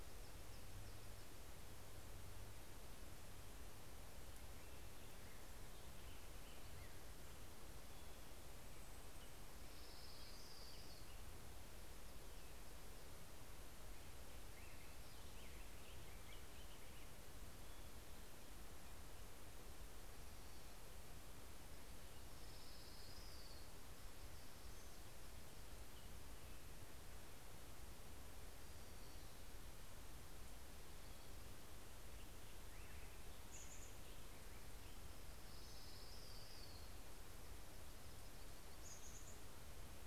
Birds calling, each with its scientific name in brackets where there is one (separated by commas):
Black-headed Grosbeak (Pheucticus melanocephalus), Orange-crowned Warbler (Leiothlypis celata), Hermit Warbler (Setophaga occidentalis), Chestnut-backed Chickadee (Poecile rufescens)